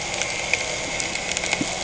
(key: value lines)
label: anthrophony, boat engine
recorder: HydroMoth